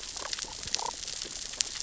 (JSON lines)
{"label": "biophony, damselfish", "recorder": "SoundTrap 600 or HydroMoth"}